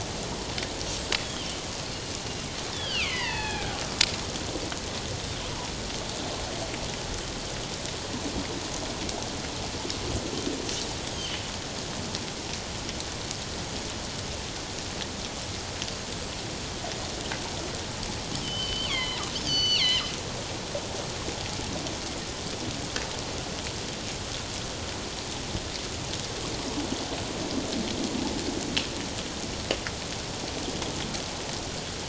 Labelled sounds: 1.2	1.5	killer whale, northern resident, G clan, 2.7 to 3.5 kHz
2.7	3.8	killer whale, northern resident, G clan, 0.78 to 5.2 kHz
10.8	11.4	killer whale, northern resident, G clan, 2.8 to 8.0 kHz
18.4	20.1	killer whale, northern resident, G clan, call N23ii, 1.8 to 6.4 kHz

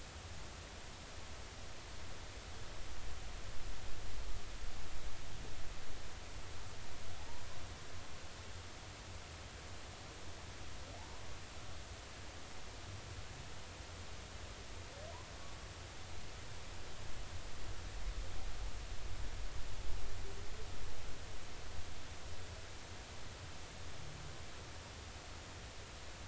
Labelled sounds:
10.9	11.2	humpback whale, 0.80 to 1.1 kHz

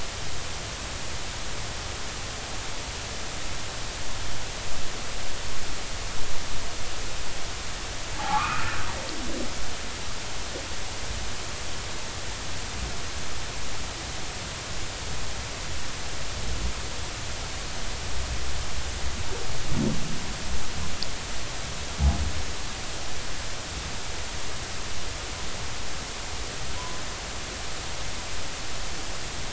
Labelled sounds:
8.1	8.8	humpback whale, 0.80 to 1.6 kHz

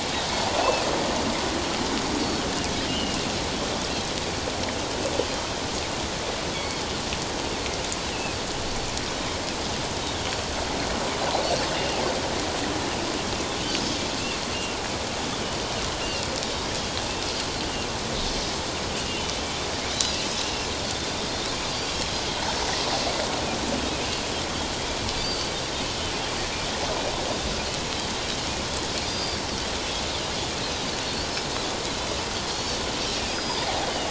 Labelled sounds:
0.5	0.9	Pacific white-sided dolphin, 2.4 to 2.7 kHz
2.9	3.3	Pacific white-sided dolphin, 2.6 to 3.2 kHz
6.5	6.8	Pacific white-sided dolphin, 2.0 to 2.3 kHz
8.1	8.4	Pacific white-sided dolphin, 2.5 to 3.0 kHz
11.7	12.0	Pacific white-sided dolphin, 2.7 to 2.9 kHz
16.0	17.0	Pacific white-sided dolphin, 2.7 to 3.4 kHz
19.9	20.2	Pacific white-sided dolphin, 3.8 to 4.1 kHz
21.7	22.0	Pacific white-sided dolphin, 4.5 to 4.8 kHz
25.2	25.5	Pacific white-sided dolphin, 4.5 to 6.2 kHz
29.1	29.4	Pacific white-sided dolphin, 3.4 to 4.9 kHz
31.0	31.3	Pacific white-sided dolphin, 4.2 to 4.8 kHz
32.5	32.8	Pacific white-sided dolphin, 4.2 to 4.7 kHz
33.2	33.7	Pacific white-sided dolphin, 4.6 to 5.0 kHz

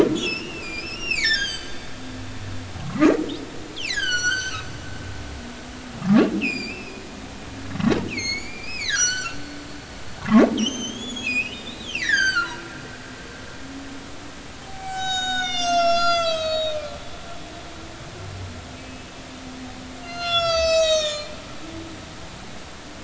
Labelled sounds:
0.2	1.9	humpback whale, 1.5 to 8.0 kHz
2.8	3.1	humpback whale, 1.0 to 1.4 kHz
3.7	4.7	humpback whale, 1.2 to 8.0 kHz
6.4	7.0	humpback whale, 2.2 to 7.4 kHz
8.1	9.4	humpback whale, 1.3 to 7.6 kHz
10.2	12.6	humpback whale, 0.80 to 8.0 kHz
14.6	17.0	humpback whale, 0.80 to 7.9 kHz
18.7	19.1	humpback whale, 2.4 to 2.7 kHz
20.0	21.3	humpback whale, 1.2 to 8.0 kHz

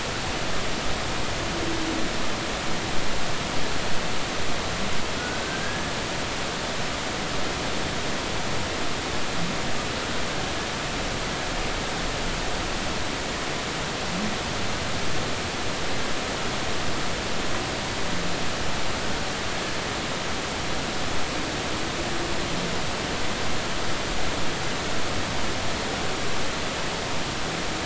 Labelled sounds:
5.2	5.9	humpback whale, 1.4 to 1.9 kHz

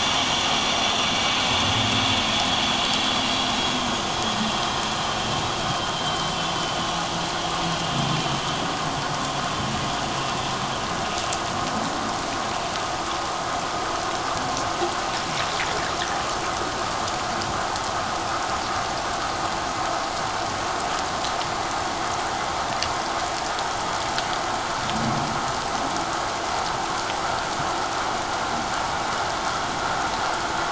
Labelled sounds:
1.2	1.5	vessel noise, 4.0 to 4.1 kHz
4.2	4.5	vessel noise, 1.8 to 1.9 kHz
6.0	6.9	vessel noise, 3.0 to 3.2 kHz

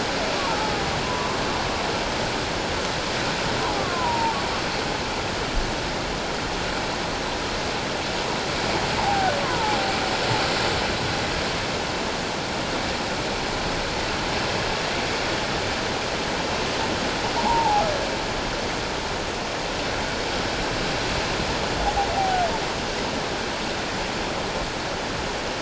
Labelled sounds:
0.4	1.4	humpback whale, 0.81 to 1.2 kHz
3.8	4.4	humpback whale, 0.84 to 1.2 kHz
9.0	9.8	humpback whale, 0.78 to 1.2 kHz
17.4	17.8	humpback whale, 0.78 to 1.0 kHz

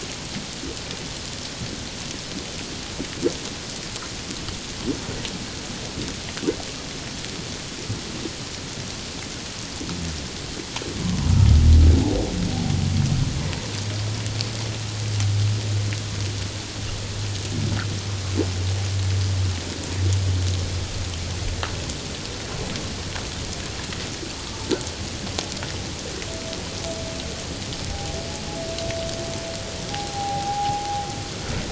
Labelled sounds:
27.9	28.1	humpback whale, 0.78 to 0.84 kHz
29.9	30.9	humpback whale, 0.78 to 0.91 kHz

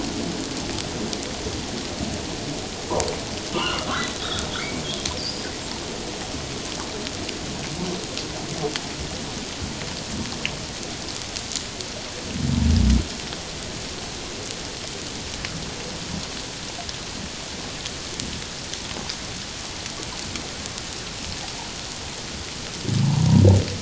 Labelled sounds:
3.5	5.5	humpback whale, 0.91 to 5.2 kHz

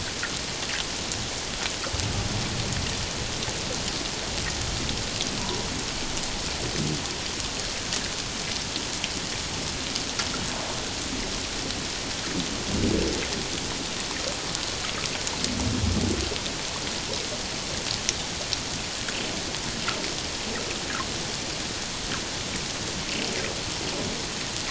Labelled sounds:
5.4	5.7	humpback whale, 0.91 to 1.1 kHz

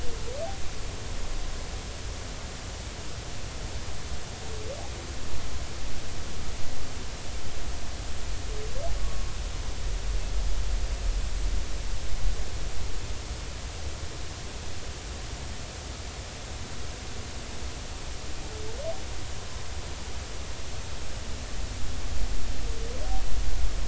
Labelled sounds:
9.0	9.3	humpback whale, 1.0 to 1.2 kHz

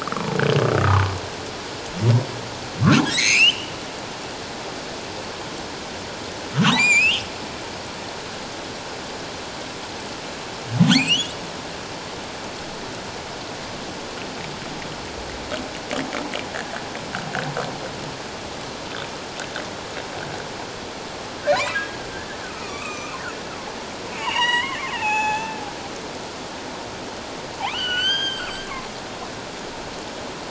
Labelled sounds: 0.0	1.1	humpback whale, 0.81 to 1.6 kHz
3.0	3.7	humpback whale, 1.6 to 6.8 kHz
6.5	7.3	humpback whale, 0.78 to 7.4 kHz
10.9	11.3	humpback whale, 2.0 to 4.7 kHz
21.4	23.1	humpback whale, 1.1 to 2.7 kHz
24.2	25.6	humpback whale, 0.78 to 7.9 kHz
27.6	28.5	humpback whale, 0.78 to 6.5 kHz

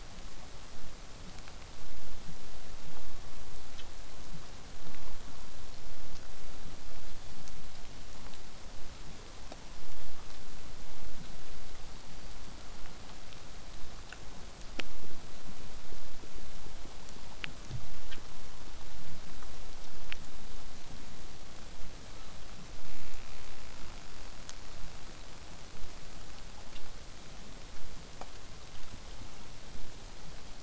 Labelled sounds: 11.5	12.4	killer whale, southern resident, 4.3 to 4.8 kHz
22.0	22.4	killer whale, southern resident, 0.54 to 1.5 kHz

